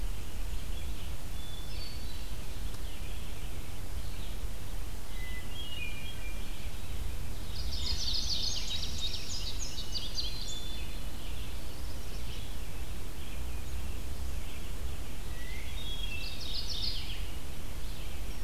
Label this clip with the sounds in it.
Red-eyed Vireo, Hermit Thrush, Mourning Warbler, Indigo Bunting